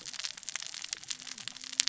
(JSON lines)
{"label": "biophony, cascading saw", "recorder": "SoundTrap 600 or HydroMoth"}